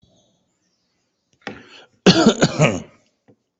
{"expert_labels": [{"quality": "good", "cough_type": "dry", "dyspnea": false, "wheezing": false, "stridor": false, "choking": false, "congestion": false, "nothing": true, "diagnosis": "healthy cough", "severity": "pseudocough/healthy cough"}], "age": 44, "gender": "male", "respiratory_condition": false, "fever_muscle_pain": false, "status": "COVID-19"}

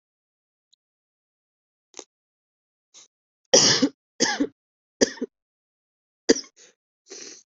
{"expert_labels": [{"quality": "ok", "cough_type": "unknown", "dyspnea": false, "wheezing": false, "stridor": false, "choking": false, "congestion": true, "nothing": false, "diagnosis": "upper respiratory tract infection", "severity": "mild"}], "age": 19, "gender": "female", "respiratory_condition": true, "fever_muscle_pain": false, "status": "symptomatic"}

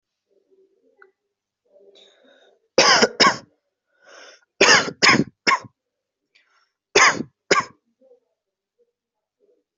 {"expert_labels": [{"quality": "ok", "cough_type": "dry", "dyspnea": false, "wheezing": false, "stridor": false, "choking": false, "congestion": false, "nothing": true, "diagnosis": "obstructive lung disease", "severity": "mild"}], "age": 18, "gender": "male", "respiratory_condition": false, "fever_muscle_pain": true, "status": "COVID-19"}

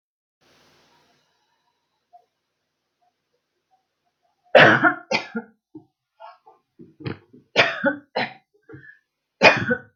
{"expert_labels": [{"quality": "good", "cough_type": "dry", "dyspnea": false, "wheezing": false, "stridor": false, "choking": false, "congestion": false, "nothing": true, "diagnosis": "upper respiratory tract infection", "severity": "mild"}], "age": 48, "gender": "female", "respiratory_condition": false, "fever_muscle_pain": false, "status": "symptomatic"}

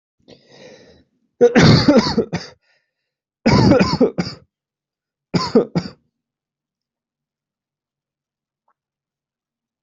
{"expert_labels": [{"quality": "good", "cough_type": "dry", "dyspnea": false, "wheezing": false, "stridor": false, "choking": false, "congestion": false, "nothing": true, "diagnosis": "upper respiratory tract infection", "severity": "mild"}], "age": 27, "gender": "male", "respiratory_condition": true, "fever_muscle_pain": false, "status": "symptomatic"}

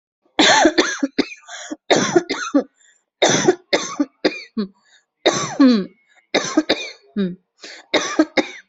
{"expert_labels": [{"quality": "good", "cough_type": "wet", "dyspnea": false, "wheezing": false, "stridor": false, "choking": false, "congestion": false, "nothing": true, "diagnosis": "upper respiratory tract infection", "severity": "severe"}], "age": 35, "gender": "female", "respiratory_condition": false, "fever_muscle_pain": false, "status": "COVID-19"}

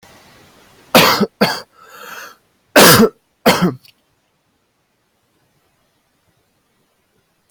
{"expert_labels": [{"quality": "good", "cough_type": "dry", "dyspnea": false, "wheezing": false, "stridor": false, "choking": false, "congestion": false, "nothing": true, "diagnosis": "COVID-19", "severity": "mild"}], "age": 23, "gender": "male", "respiratory_condition": false, "fever_muscle_pain": false, "status": "healthy"}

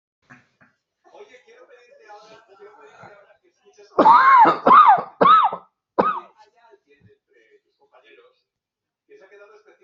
{"expert_labels": [{"quality": "good", "cough_type": "unknown", "dyspnea": false, "wheezing": false, "stridor": false, "choking": false, "congestion": false, "nothing": true, "diagnosis": "healthy cough", "severity": "pseudocough/healthy cough"}]}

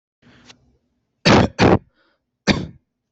{"expert_labels": [{"quality": "poor", "cough_type": "unknown", "dyspnea": false, "wheezing": false, "stridor": false, "choking": false, "congestion": false, "nothing": true, "diagnosis": "healthy cough", "severity": "pseudocough/healthy cough"}], "age": 21, "gender": "male", "respiratory_condition": false, "fever_muscle_pain": true, "status": "symptomatic"}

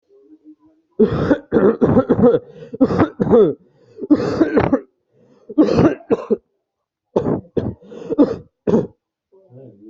{"expert_labels": [{"quality": "good", "cough_type": "wet", "dyspnea": false, "wheezing": false, "stridor": false, "choking": false, "congestion": false, "nothing": true, "diagnosis": "lower respiratory tract infection", "severity": "severe"}], "age": 21, "gender": "male", "respiratory_condition": true, "fever_muscle_pain": true, "status": "symptomatic"}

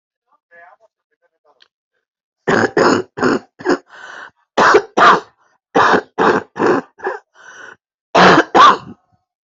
{"expert_labels": [{"quality": "good", "cough_type": "dry", "dyspnea": false, "wheezing": false, "stridor": false, "choking": false, "congestion": false, "nothing": true, "diagnosis": "COVID-19", "severity": "mild"}], "age": 60, "gender": "female", "respiratory_condition": false, "fever_muscle_pain": false, "status": "COVID-19"}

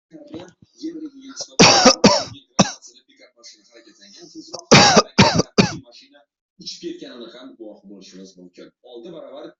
{"expert_labels": [{"quality": "ok", "cough_type": "dry", "dyspnea": false, "wheezing": false, "stridor": false, "choking": false, "congestion": false, "nothing": true, "diagnosis": "lower respiratory tract infection", "severity": "mild"}, {"quality": "ok", "cough_type": "dry", "dyspnea": false, "wheezing": false, "stridor": false, "choking": false, "congestion": false, "nothing": true, "diagnosis": "COVID-19", "severity": "mild"}, {"quality": "good", "cough_type": "dry", "dyspnea": false, "wheezing": false, "stridor": false, "choking": false, "congestion": false, "nothing": true, "diagnosis": "upper respiratory tract infection", "severity": "mild"}, {"quality": "good", "cough_type": "dry", "dyspnea": false, "wheezing": false, "stridor": false, "choking": false, "congestion": false, "nothing": true, "diagnosis": "healthy cough", "severity": "pseudocough/healthy cough"}], "age": 18, "gender": "male", "respiratory_condition": true, "fever_muscle_pain": true, "status": "COVID-19"}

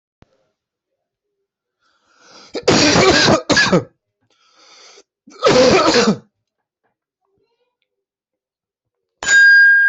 {"expert_labels": [{"quality": "good", "cough_type": "dry", "dyspnea": false, "wheezing": false, "stridor": false, "choking": false, "congestion": false, "nothing": true, "diagnosis": "obstructive lung disease", "severity": "severe"}], "age": 33, "gender": "male", "respiratory_condition": true, "fever_muscle_pain": false, "status": "symptomatic"}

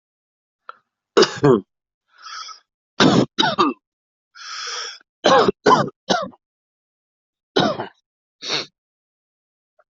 {"expert_labels": [{"quality": "good", "cough_type": "unknown", "dyspnea": false, "wheezing": false, "stridor": false, "choking": false, "congestion": true, "nothing": false, "diagnosis": "upper respiratory tract infection", "severity": "mild"}], "age": 31, "gender": "female", "respiratory_condition": true, "fever_muscle_pain": true, "status": "COVID-19"}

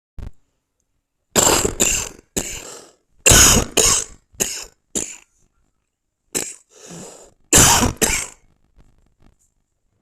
{"expert_labels": [{"quality": "ok", "cough_type": "dry", "dyspnea": false, "wheezing": false, "stridor": false, "choking": false, "congestion": false, "nothing": true, "diagnosis": "upper respiratory tract infection", "severity": "mild"}], "age": 45, "gender": "male", "respiratory_condition": false, "fever_muscle_pain": false, "status": "symptomatic"}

